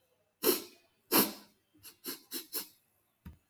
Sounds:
Sniff